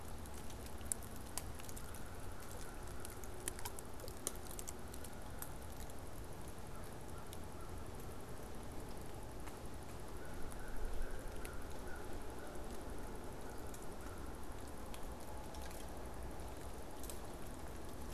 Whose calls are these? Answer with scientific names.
Branta canadensis, Corvus brachyrhynchos